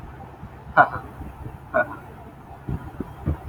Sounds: Laughter